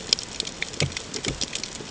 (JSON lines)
{"label": "ambient", "recorder": "HydroMoth"}